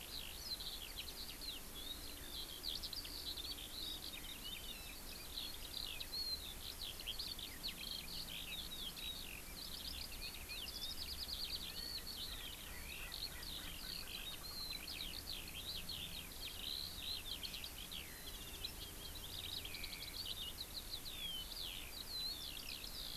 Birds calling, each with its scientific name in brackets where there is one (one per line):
Erckel's Francolin (Pternistis erckelii)
Eurasian Skylark (Alauda arvensis)